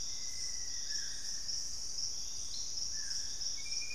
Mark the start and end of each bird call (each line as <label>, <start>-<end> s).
Black-faced Antthrush (Formicarius analis), 0.0-1.7 s
Purple-throated Fruitcrow (Querula purpurata), 0.0-3.9 s